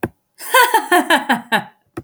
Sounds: Laughter